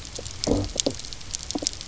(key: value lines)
label: biophony, low growl
recorder: SoundTrap 300